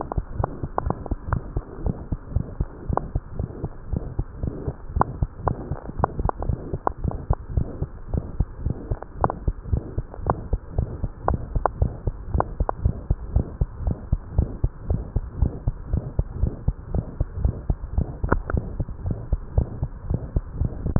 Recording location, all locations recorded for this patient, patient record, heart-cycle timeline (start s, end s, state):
tricuspid valve (TV)
aortic valve (AV)+pulmonary valve (PV)+tricuspid valve (TV)+mitral valve (MV)
#Age: Infant
#Sex: Male
#Height: 72.0 cm
#Weight: 8.8 kg
#Pregnancy status: False
#Murmur: Present
#Murmur locations: aortic valve (AV)+mitral valve (MV)+pulmonary valve (PV)+tricuspid valve (TV)
#Most audible location: aortic valve (AV)
#Systolic murmur timing: Early-systolic
#Systolic murmur shape: Decrescendo
#Systolic murmur grading: II/VI
#Systolic murmur pitch: Low
#Systolic murmur quality: Blowing
#Diastolic murmur timing: nan
#Diastolic murmur shape: nan
#Diastolic murmur grading: nan
#Diastolic murmur pitch: nan
#Diastolic murmur quality: nan
#Outcome: Abnormal
#Campaign: 2015 screening campaign
0.00	3.36	unannotated
3.36	3.48	S1
3.48	3.61	systole
3.61	3.72	S2
3.72	3.90	diastole
3.90	4.04	S1
4.04	4.18	systole
4.18	4.26	S2
4.26	4.42	diastole
4.42	4.54	S1
4.54	4.63	systole
4.63	4.74	S2
4.74	4.94	diastole
4.94	5.08	S1
5.08	5.20	systole
5.20	5.30	S2
5.30	5.44	diastole
5.44	5.56	S1
5.56	5.70	systole
5.70	5.78	S2
5.78	5.98	diastole
5.98	6.10	S1
6.10	6.18	systole
6.18	6.30	S2
6.30	6.44	diastole
6.44	6.58	S1
6.58	6.72	systole
6.72	6.82	S2
6.82	7.00	diastole
7.00	7.12	S1
7.12	7.24	systole
7.24	7.40	S2
7.40	7.54	diastole
7.54	7.68	S1
7.68	7.78	systole
7.78	7.90	S2
7.90	8.10	diastole
8.10	8.22	S1
8.22	8.36	systole
8.36	8.48	S2
8.48	8.62	diastole
8.62	8.74	S1
8.74	8.88	systole
8.88	8.98	S2
8.98	9.18	diastole
9.18	9.30	S1
9.30	9.44	systole
9.44	9.56	S2
9.56	9.70	diastole
9.70	9.82	S1
9.82	9.96	systole
9.96	10.06	S2
10.06	10.24	diastole
10.24	10.38	S1
10.38	10.50	systole
10.50	10.60	S2
10.60	10.76	diastole
10.76	10.90	S1
10.90	11.02	systole
11.02	11.12	S2
11.12	11.28	diastole
11.28	11.42	S1
11.42	11.54	systole
11.54	11.66	S2
11.66	11.80	diastole
11.80	11.94	S1
11.94	12.06	systole
12.06	12.16	S2
12.16	12.32	diastole
12.32	12.46	S1
12.46	12.58	systole
12.58	12.68	S2
12.68	12.82	diastole
12.82	12.98	S1
12.98	13.06	systole
13.06	13.18	S2
13.18	13.30	diastole
13.30	13.44	S1
13.44	13.56	systole
13.56	13.68	S2
13.68	13.80	diastole
13.80	13.96	S1
13.96	14.08	systole
14.08	14.20	S2
14.20	14.36	diastole
14.36	14.50	S1
14.50	14.60	systole
14.60	14.70	S2
14.70	14.88	diastole
14.88	15.04	S1
15.04	15.12	systole
15.12	15.24	S2
15.24	15.38	diastole
15.38	15.54	S1
15.54	15.66	systole
15.66	15.76	S2
15.76	15.90	diastole
15.90	16.04	S1
16.04	16.14	systole
16.14	16.26	S2
16.26	16.38	diastole
16.38	16.54	S1
16.54	16.65	systole
16.65	16.76	S2
16.76	16.92	diastole
16.92	17.06	S1
17.06	17.18	systole
17.18	17.28	S2
17.28	17.40	diastole
17.40	17.56	S1
17.56	17.66	systole
17.66	17.78	S2
17.78	17.94	diastole
17.94	18.10	S1
18.10	18.24	systole
18.24	18.40	S2
18.40	18.52	diastole
18.52	18.66	S1
18.66	18.78	systole
18.78	18.88	S2
18.88	19.04	diastole
19.04	19.18	S1
19.18	19.30	systole
19.30	19.44	S2
19.44	19.54	diastole
19.54	19.70	S1
19.70	19.79	systole
19.79	19.90	S2
19.90	20.06	diastole
20.06	20.22	S1
20.22	20.34	systole
20.34	20.46	S2
20.46	20.58	diastole
20.58	20.72	S1
20.72	20.86	systole
20.86	20.99	S2